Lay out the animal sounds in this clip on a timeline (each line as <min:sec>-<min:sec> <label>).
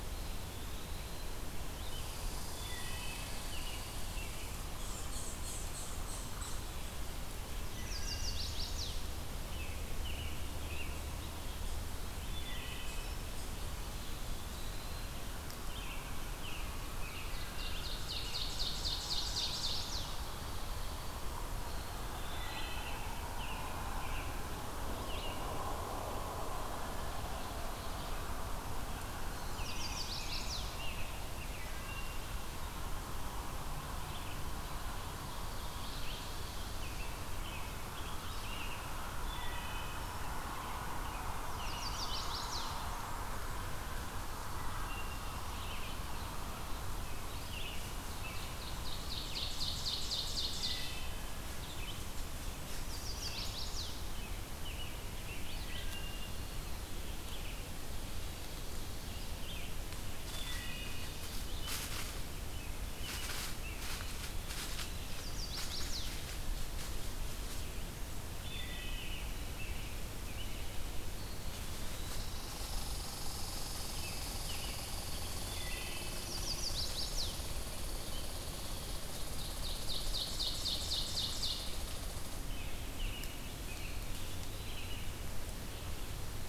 0:00.0-0:01.4 Eastern Wood-Pewee (Contopus virens)
0:02.3-0:03.5 Wood Thrush (Hylocichla mustelina)
0:03.5-0:04.8 American Robin (Turdus migratorius)
0:04.7-0:06.7 unknown mammal
0:07.5-0:09.1 Chestnut-sided Warbler (Setophaga pensylvanica)
0:07.7-0:08.6 Wood Thrush (Hylocichla mustelina)
0:09.3-0:11.4 American Robin (Turdus migratorius)
0:12.1-0:13.2 Wood Thrush (Hylocichla mustelina)
0:13.8-0:15.2 Eastern Wood-Pewee (Contopus virens)
0:15.4-0:18.4 American Robin (Turdus migratorius)
0:17.1-0:20.4 Ovenbird (Seiurus aurocapilla)
0:22.1-0:23.2 Wood Thrush (Hylocichla mustelina)
0:22.6-0:26.1 American Robin (Turdus migratorius)
0:29.3-0:30.9 Chestnut-sided Warbler (Setophaga pensylvanica)
0:29.4-0:31.6 American Robin (Turdus migratorius)
0:31.3-0:32.5 Wood Thrush (Hylocichla mustelina)
0:33.5-0:41.8 Red-eyed Vireo (Vireo olivaceus)
0:35.2-0:36.9 Ovenbird (Seiurus aurocapilla)
0:36.8-0:38.9 American Robin (Turdus migratorius)
0:38.8-0:40.2 Wood Thrush (Hylocichla mustelina)
0:40.5-0:42.4 American Robin (Turdus migratorius)
0:41.4-0:42.9 Chestnut-sided Warbler (Setophaga pensylvanica)
0:44.4-0:45.9 Wood Thrush (Hylocichla mustelina)
0:45.5-1:01.7 Red-eyed Vireo (Vireo olivaceus)
0:48.1-0:51.2 Ovenbird (Seiurus aurocapilla)
0:50.4-0:51.3 Wood Thrush (Hylocichla mustelina)
0:52.6-0:54.2 Chestnut-sided Warbler (Setophaga pensylvanica)
0:54.0-0:56.5 American Robin (Turdus migratorius)
0:55.3-0:56.5 Wood Thrush (Hylocichla mustelina)
0:55.8-0:57.0 Eastern Wood-Pewee (Contopus virens)
1:00.2-1:01.3 Wood Thrush (Hylocichla mustelina)
1:02.3-1:04.1 American Robin (Turdus migratorius)
1:05.0-1:06.1 Chestnut-sided Warbler (Setophaga pensylvanica)
1:08.3-1:09.4 Wood Thrush (Hylocichla mustelina)
1:08.8-1:10.8 American Robin (Turdus migratorius)
1:11.1-1:12.2 Eastern Wood-Pewee (Contopus virens)
1:12.2-1:22.5 Red Squirrel (Tamiasciurus hudsonicus)
1:15.4-1:16.4 Wood Thrush (Hylocichla mustelina)
1:16.1-1:17.6 Chestnut-sided Warbler (Setophaga pensylvanica)
1:19.2-1:21.9 Ovenbird (Seiurus aurocapilla)
1:22.4-1:25.0 American Robin (Turdus migratorius)
1:23.5-1:25.0 Eastern Wood-Pewee (Contopus virens)